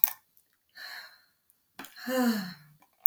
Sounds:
Sigh